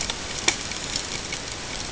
{"label": "ambient", "recorder": "HydroMoth"}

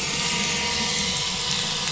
{"label": "anthrophony, boat engine", "recorder": "SoundTrap 500"}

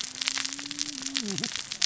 {"label": "biophony, cascading saw", "recorder": "SoundTrap 600 or HydroMoth"}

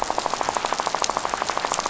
{"label": "biophony, rattle", "recorder": "SoundTrap 500"}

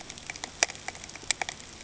{"label": "ambient", "recorder": "HydroMoth"}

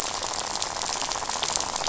{"label": "biophony, rattle", "recorder": "SoundTrap 500"}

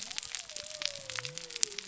{"label": "biophony", "recorder": "SoundTrap 300"}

